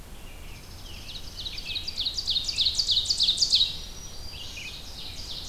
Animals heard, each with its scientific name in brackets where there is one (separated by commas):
Scarlet Tanager (Piranga olivacea), Dark-eyed Junco (Junco hyemalis), Red-eyed Vireo (Vireo olivaceus), Ovenbird (Seiurus aurocapilla), Black-throated Green Warbler (Setophaga virens)